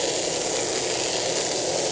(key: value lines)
label: anthrophony, boat engine
recorder: HydroMoth